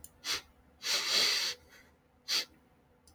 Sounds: Sniff